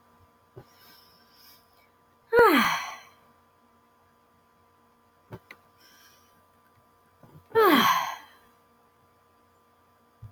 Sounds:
Sigh